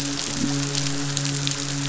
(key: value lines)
label: biophony, midshipman
recorder: SoundTrap 500

label: biophony
recorder: SoundTrap 500